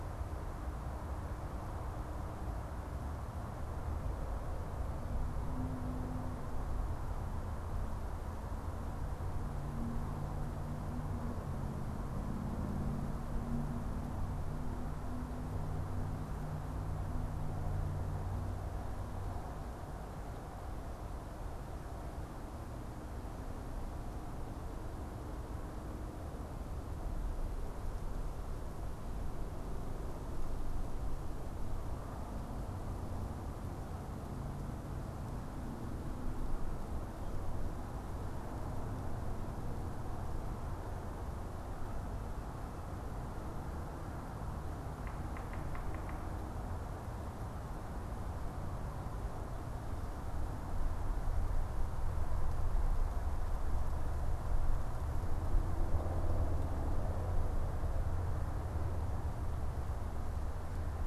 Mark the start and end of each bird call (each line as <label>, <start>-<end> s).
unidentified bird, 45.0-46.4 s